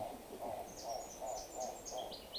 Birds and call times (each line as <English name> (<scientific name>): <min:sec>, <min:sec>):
Hartlaub's Turaco (Tauraco hartlaubi): 0:00.5